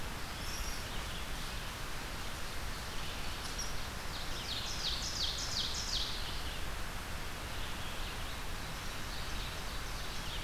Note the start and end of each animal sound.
[0.00, 10.44] Red-eyed Vireo (Vireo olivaceus)
[0.38, 0.89] unknown mammal
[3.38, 3.79] unknown mammal
[4.04, 6.41] Ovenbird (Seiurus aurocapilla)
[8.73, 10.41] Ovenbird (Seiurus aurocapilla)

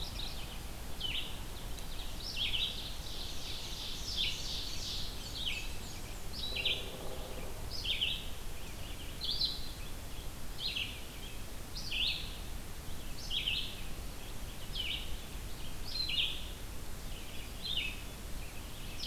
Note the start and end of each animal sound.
[0.00, 0.76] Mourning Warbler (Geothlypis philadelphia)
[0.00, 19.06] Red-eyed Vireo (Vireo olivaceus)
[1.11, 5.18] Ovenbird (Seiurus aurocapilla)
[4.89, 6.40] Black-and-white Warbler (Mniotilta varia)

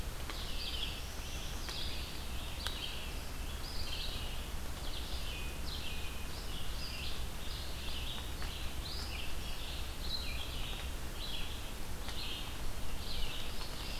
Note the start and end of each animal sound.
[0.27, 14.00] Red-eyed Vireo (Vireo olivaceus)
[0.41, 1.85] Northern Parula (Setophaga americana)
[13.34, 14.00] Northern Parula (Setophaga americana)

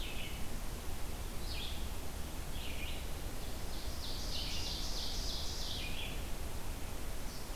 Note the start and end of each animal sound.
[0.00, 7.55] Red-eyed Vireo (Vireo olivaceus)
[3.46, 6.31] Ovenbird (Seiurus aurocapilla)

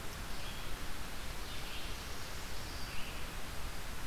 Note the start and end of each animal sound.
[0.00, 4.06] Red-eyed Vireo (Vireo olivaceus)

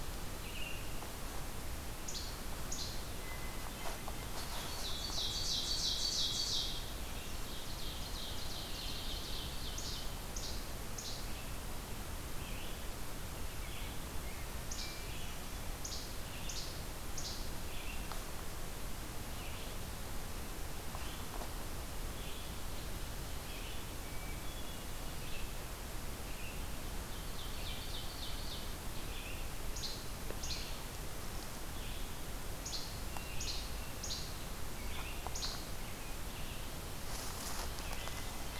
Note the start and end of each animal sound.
[1.89, 3.08] Least Flycatcher (Empidonax minimus)
[3.03, 4.20] Hermit Thrush (Catharus guttatus)
[4.24, 6.85] Ovenbird (Seiurus aurocapilla)
[7.22, 9.78] Ovenbird (Seiurus aurocapilla)
[9.69, 10.03] Least Flycatcher (Empidonax minimus)
[10.32, 10.61] Least Flycatcher (Empidonax minimus)
[10.93, 11.20] Least Flycatcher (Empidonax minimus)
[12.24, 18.09] Red-eyed Vireo (Vireo olivaceus)
[14.65, 14.98] Least Flycatcher (Empidonax minimus)
[15.75, 16.04] Least Flycatcher (Empidonax minimus)
[16.43, 16.66] Least Flycatcher (Empidonax minimus)
[17.07, 17.36] Least Flycatcher (Empidonax minimus)
[19.17, 26.66] Red-eyed Vireo (Vireo olivaceus)
[26.86, 28.94] Ovenbird (Seiurus aurocapilla)
[28.92, 38.32] Red-eyed Vireo (Vireo olivaceus)
[29.62, 30.07] Least Flycatcher (Empidonax minimus)
[30.34, 30.74] Least Flycatcher (Empidonax minimus)
[32.60, 32.93] Least Flycatcher (Empidonax minimus)
[33.02, 34.23] Hermit Thrush (Catharus guttatus)
[33.36, 33.65] Least Flycatcher (Empidonax minimus)
[33.92, 34.28] Least Flycatcher (Empidonax minimus)
[35.33, 35.56] Least Flycatcher (Empidonax minimus)

